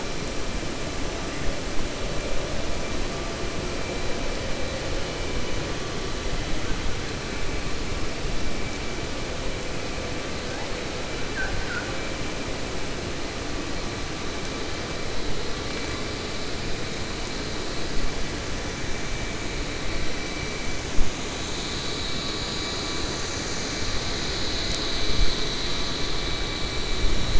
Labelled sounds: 11.2	11.9	killer whale, 0.76 to 2.0 kHz

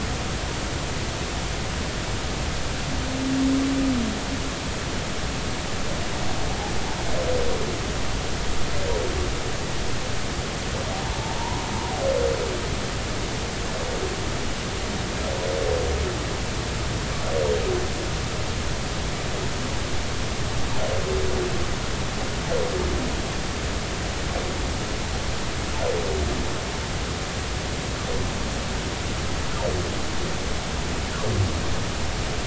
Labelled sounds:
11.0	11.6	humpback whale, 0.80 to 1.1 kHz

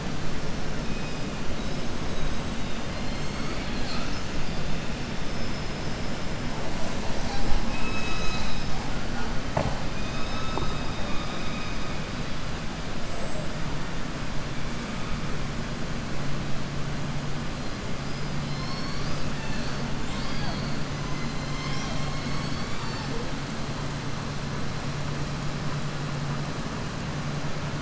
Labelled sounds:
18.4	19.3	killer whale, southern resident, 4.1 to 6.2 kHz

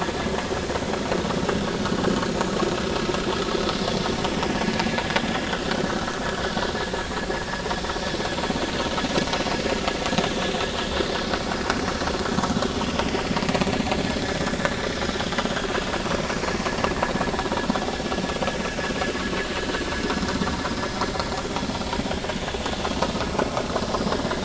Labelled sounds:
16.4	16.6	vessel noise, 4.1 to 4.4 kHz

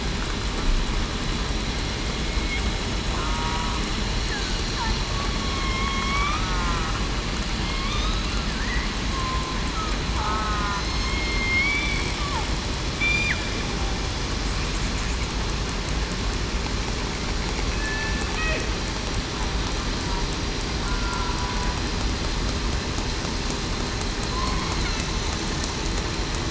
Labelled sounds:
2.2	2.6	killer whale, southern resident, 2.1 to 2.2 kHz
3.2	3.8	killer whale, southern resident, 0.91 to 1.3 kHz
5.4	6.7	killer whale, southern resident, 1.1 to 1.3 kHz
7.6	8.0	killer whale, southern resident, 2.1 to 2.5 kHz
9.1	9.6	killer whale, southern resident, 1.0 to 1.1 kHz
10.2	11.3	killer whale, southern resident, 0.98 to 5.4 kHz
11.6	12.0	killer whale, southern resident, 3.4 to 3.5 kHz
17.7	18.2	killer whale, southern resident, 1.7 to 1.8 kHz
20.8	21.3	killer whale, southern resident, 1.3 to 1.4 kHz

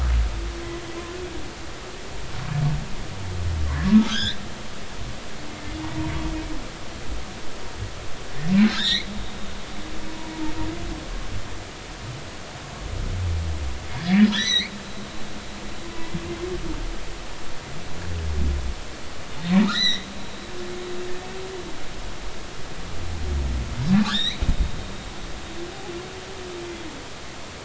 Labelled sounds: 3.7	4.4	humpback whale, 1.0 to 5.5 kHz
8.6	9.1	humpback whale, 1.5 to 7.4 kHz
14.0	14.7	humpback whale, 1.5 to 8.0 kHz
19.6	20.1	humpback whale, 1.6 to 6.1 kHz
24.0	24.4	humpback whale, 1.1 to 4.3 kHz

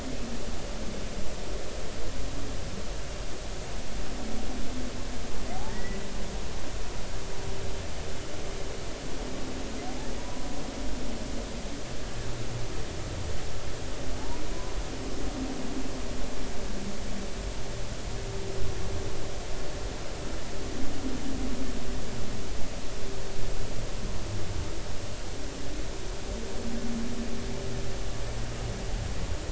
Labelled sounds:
5.5	6.0	humpback whale, 0.80 to 2.0 kHz
10.2	10.5	humpback whale, 0.93 to 1.1 kHz

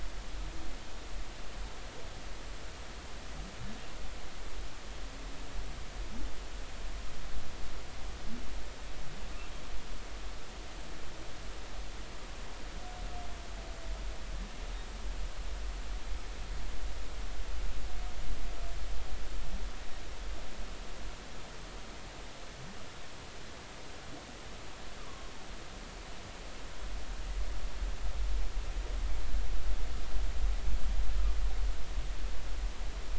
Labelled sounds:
25.0	25.3	humpback whale, 0.96 to 1.2 kHz

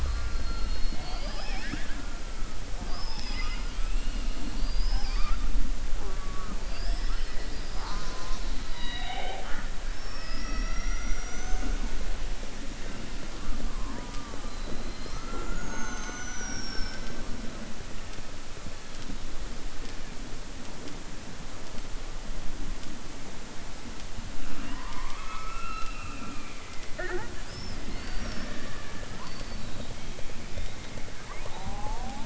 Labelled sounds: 2.7	4.3	killer whale, southern resident, 0.55 to 5.8 kHz

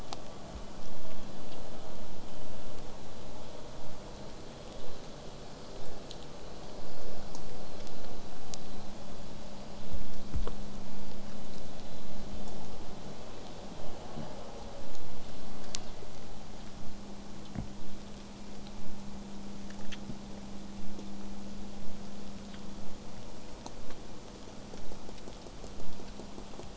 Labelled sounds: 16.8	21.8	vessel noise, 0 to 8.0 kHz

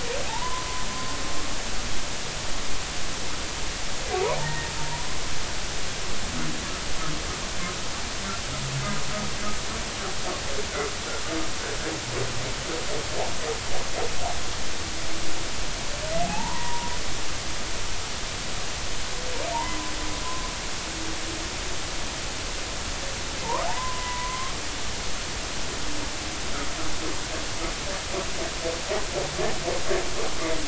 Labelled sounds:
0.3	1.2	humpback whale, 0.80 to 1.1 kHz
4.4	5.4	humpback whale, 0.80 to 1.9 kHz
16.2	16.9	humpback whale, 0.80 to 1.1 kHz
19.5	19.9	humpback whale, 0.83 to 1.2 kHz
23.4	24.5	humpback whale, 0.80 to 1.3 kHz

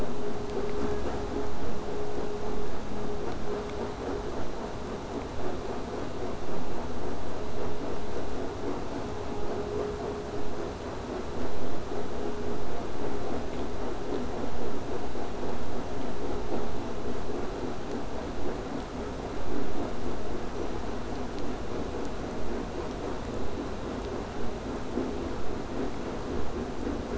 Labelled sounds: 21.4	26.4	vessel noise, 0 to 8.0 kHz

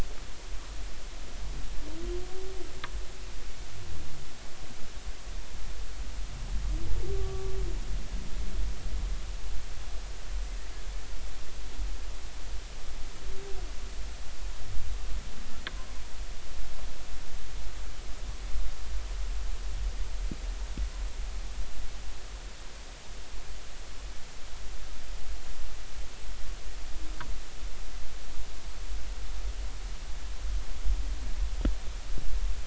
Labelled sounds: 7.2	7.5	humpback whale, 1.1 to 1.2 kHz

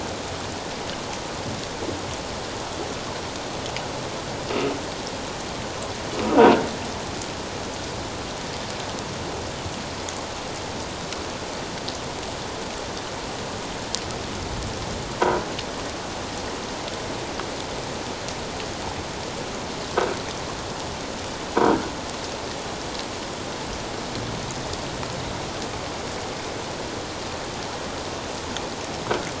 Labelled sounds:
15.2	15.5	croaking sound likely from a nearby submerged object, 0.91 to 1.6 kHz

